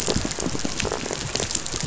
{"label": "biophony, rattle", "recorder": "SoundTrap 500"}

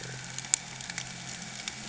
{"label": "anthrophony, boat engine", "recorder": "HydroMoth"}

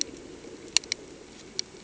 {"label": "anthrophony, boat engine", "recorder": "HydroMoth"}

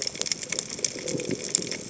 {"label": "biophony", "recorder": "HydroMoth"}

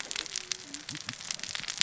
{"label": "biophony, cascading saw", "recorder": "SoundTrap 600 or HydroMoth"}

